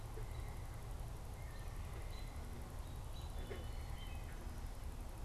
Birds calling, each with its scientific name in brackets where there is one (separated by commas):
American Robin (Turdus migratorius)